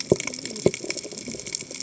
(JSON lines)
{"label": "biophony, cascading saw", "recorder": "HydroMoth"}